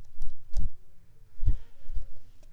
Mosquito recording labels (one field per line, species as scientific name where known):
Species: Mansonia uniformis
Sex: female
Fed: unfed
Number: one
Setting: cup